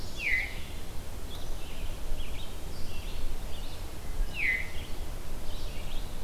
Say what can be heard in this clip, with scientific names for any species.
Vireo olivaceus, Catharus fuscescens